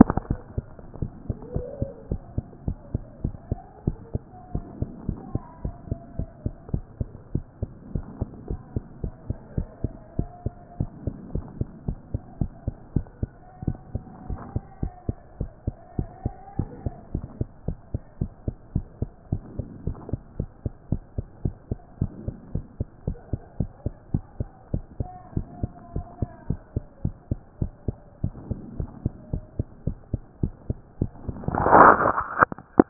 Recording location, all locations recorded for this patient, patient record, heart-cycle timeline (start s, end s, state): mitral valve (MV)
aortic valve (AV)+pulmonary valve (PV)+tricuspid valve (TV)+mitral valve (MV)
#Age: Child
#Sex: Female
#Height: 103.0 cm
#Weight: 17.3 kg
#Pregnancy status: False
#Murmur: Absent
#Murmur locations: nan
#Most audible location: nan
#Systolic murmur timing: nan
#Systolic murmur shape: nan
#Systolic murmur grading: nan
#Systolic murmur pitch: nan
#Systolic murmur quality: nan
#Diastolic murmur timing: nan
#Diastolic murmur shape: nan
#Diastolic murmur grading: nan
#Diastolic murmur pitch: nan
#Diastolic murmur quality: nan
#Outcome: Normal
#Campaign: 2014 screening campaign
0.00	2.01	unannotated
2.01	2.10	diastole
2.10	2.22	S1
2.22	2.36	systole
2.36	2.46	S2
2.46	2.66	diastole
2.66	2.78	S1
2.78	2.92	systole
2.92	3.02	S2
3.02	3.22	diastole
3.22	3.36	S1
3.36	3.50	systole
3.50	3.62	S2
3.62	3.84	diastole
3.84	3.98	S1
3.98	4.14	systole
4.14	4.28	S2
4.28	4.50	diastole
4.50	4.64	S1
4.64	4.78	systole
4.78	4.90	S2
4.90	5.06	diastole
5.06	5.20	S1
5.20	5.32	systole
5.32	5.42	S2
5.42	5.62	diastole
5.62	5.76	S1
5.76	5.90	systole
5.90	6.00	S2
6.00	6.18	diastole
6.18	6.30	S1
6.30	6.44	systole
6.44	6.54	S2
6.54	6.72	diastole
6.72	6.84	S1
6.84	7.00	systole
7.00	7.12	S2
7.12	7.32	diastole
7.32	7.44	S1
7.44	7.60	systole
7.60	7.72	S2
7.72	7.92	diastole
7.92	8.06	S1
8.06	8.20	systole
8.20	8.30	S2
8.30	8.48	diastole
8.48	8.60	S1
8.60	8.74	systole
8.74	8.84	S2
8.84	9.02	diastole
9.02	9.14	S1
9.14	9.28	systole
9.28	9.38	S2
9.38	9.56	diastole
9.56	9.68	S1
9.68	9.84	systole
9.84	9.96	S2
9.96	10.18	diastole
10.18	10.30	S1
10.30	10.44	systole
10.44	10.56	S2
10.56	10.78	diastole
10.78	10.90	S1
10.90	11.04	systole
11.04	11.14	S2
11.14	11.32	diastole
11.32	11.46	S1
11.46	11.58	systole
11.58	11.68	S2
11.68	11.86	diastole
11.86	11.98	S1
11.98	12.12	systole
12.12	12.22	S2
12.22	12.40	diastole
12.40	12.52	S1
12.52	12.66	systole
12.66	12.76	S2
12.76	12.94	diastole
12.94	13.08	S1
13.08	13.30	systole
13.30	13.42	S2
13.42	13.64	diastole
13.64	13.78	S1
13.78	13.94	systole
13.94	14.06	S2
14.06	14.26	diastole
14.26	14.40	S1
14.40	14.54	systole
14.54	14.64	S2
14.64	14.82	diastole
14.82	14.92	S1
14.92	15.08	systole
15.08	15.18	S2
15.18	15.38	diastole
15.38	15.50	S1
15.50	15.66	systole
15.66	15.76	S2
15.76	15.98	diastole
15.98	16.10	S1
16.10	16.24	systole
16.24	16.36	S2
16.36	16.58	diastole
16.58	16.70	S1
16.70	16.84	systole
16.84	16.94	S2
16.94	17.14	diastole
17.14	17.26	S1
17.26	17.38	systole
17.38	17.48	S2
17.48	17.66	diastole
17.66	17.78	S1
17.78	17.92	systole
17.92	18.02	S2
18.02	18.22	diastole
18.22	18.32	S1
18.32	18.46	systole
18.46	18.56	S2
18.56	18.74	diastole
18.74	18.86	S1
18.86	19.00	systole
19.00	19.10	S2
19.10	19.30	diastole
19.30	19.42	S1
19.42	19.56	systole
19.56	19.68	S2
19.68	19.86	diastole
19.86	19.98	S1
19.98	20.10	systole
20.10	20.20	S2
20.20	20.38	diastole
20.38	20.50	S1
20.50	20.64	systole
20.64	20.72	S2
20.72	20.90	diastole
20.90	21.02	S1
21.02	21.16	systole
21.16	21.26	S2
21.26	21.44	diastole
21.44	21.56	S1
21.56	21.70	systole
21.70	21.80	S2
21.80	22.00	diastole
22.00	22.12	S1
22.12	22.26	systole
22.26	22.36	S2
22.36	22.54	diastole
22.54	22.66	S1
22.66	22.78	systole
22.78	22.88	S2
22.88	23.06	diastole
23.06	23.18	S1
23.18	23.32	systole
23.32	23.40	S2
23.40	23.58	diastole
23.58	23.70	S1
23.70	23.84	systole
23.84	23.94	S2
23.94	24.12	diastole
24.12	24.24	S1
24.24	24.38	systole
24.38	24.50	S2
24.50	24.72	diastole
24.72	24.84	S1
24.84	24.98	systole
24.98	25.10	S2
25.10	25.32	diastole
25.32	25.46	S1
25.46	25.60	systole
25.60	25.72	S2
25.72	25.94	diastole
25.94	26.06	S1
26.06	26.20	systole
26.20	26.30	S2
26.30	26.48	diastole
26.48	26.60	S1
26.60	26.74	systole
26.74	26.84	S2
26.84	27.04	diastole
27.04	27.16	S1
27.16	27.30	systole
27.30	27.40	S2
27.40	27.60	diastole
27.60	27.72	S1
27.72	27.88	systole
27.88	28.00	S2
28.00	28.22	diastole
28.22	28.34	S1
28.34	28.48	systole
28.48	28.60	S2
28.60	28.78	diastole
28.78	28.90	S1
28.90	29.04	systole
29.04	29.14	S2
29.14	29.32	diastole
29.32	29.44	S1
29.44	29.58	systole
29.58	29.68	S2
29.68	29.86	diastole
29.86	29.98	S1
29.98	30.12	systole
30.12	30.22	S2
30.22	30.42	diastole
30.42	30.54	S1
30.54	30.68	systole
30.68	30.80	S2
30.80	31.00	diastole
31.00	31.12	S1
31.12	31.26	systole
31.26	31.28	S2
31.28	32.90	unannotated